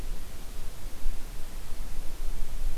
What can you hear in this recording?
forest ambience